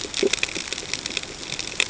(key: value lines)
label: ambient
recorder: HydroMoth